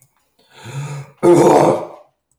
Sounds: Throat clearing